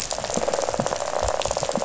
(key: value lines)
label: biophony, rattle
recorder: SoundTrap 500